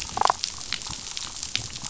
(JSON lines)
{"label": "biophony, damselfish", "recorder": "SoundTrap 500"}